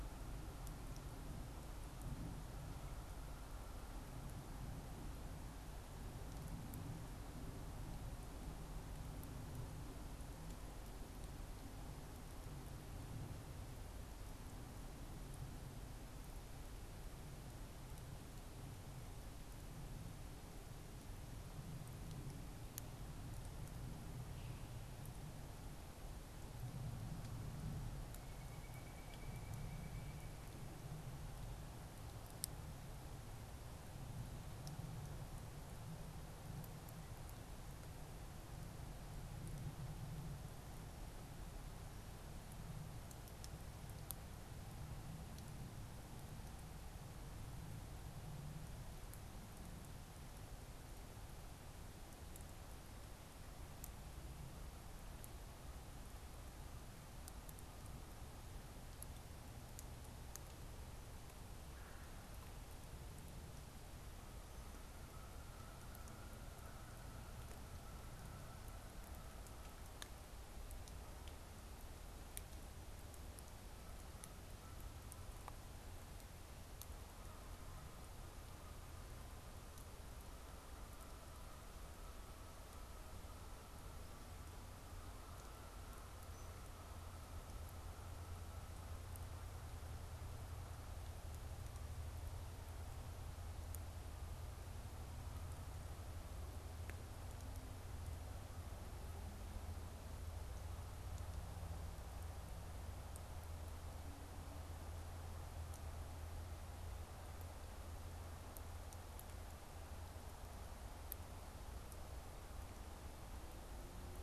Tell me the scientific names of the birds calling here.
Dryocopus pileatus, Melanerpes carolinus, Branta canadensis